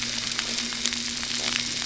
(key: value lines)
label: anthrophony, boat engine
recorder: SoundTrap 300